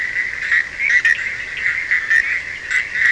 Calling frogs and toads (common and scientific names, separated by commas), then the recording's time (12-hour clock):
Bischoff's tree frog (Boana bischoffi), Cochran's lime tree frog (Sphaenorhynchus surdus)
2:30am